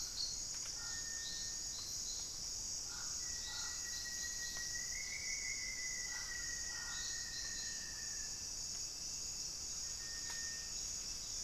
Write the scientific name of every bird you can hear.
Formicarius rufifrons